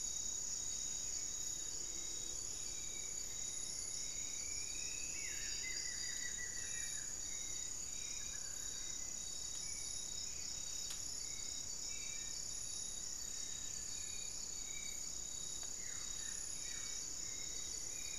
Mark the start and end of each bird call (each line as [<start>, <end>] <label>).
[0.00, 18.19] Hauxwell's Thrush (Turdus hauxwelli)
[0.00, 18.19] Spot-winged Antshrike (Pygiptila stellaris)
[2.92, 5.82] Striped Woodcreeper (Xiphorhynchus obsoletus)
[4.72, 7.32] Black-faced Antthrush (Formicarius analis)
[8.02, 8.92] unidentified bird
[12.02, 14.12] Black-faced Antthrush (Formicarius analis)
[12.52, 14.12] Buff-breasted Wren (Cantorchilus leucotis)
[15.52, 18.19] Buff-throated Woodcreeper (Xiphorhynchus guttatus)
[17.22, 18.19] Striped Woodcreeper (Xiphorhynchus obsoletus)